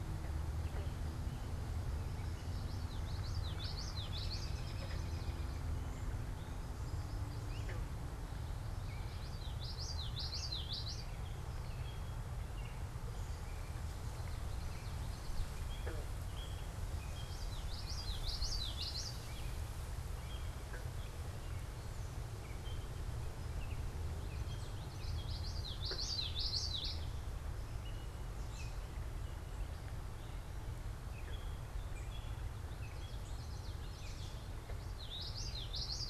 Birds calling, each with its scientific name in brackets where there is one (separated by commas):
unidentified bird, Common Yellowthroat (Geothlypis trichas), Great Crested Flycatcher (Myiarchus crinitus), American Robin (Turdus migratorius)